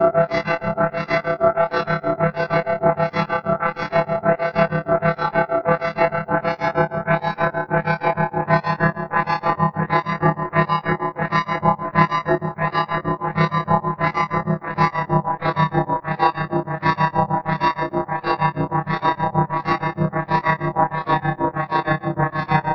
Does the sound ever stop in the middle?
no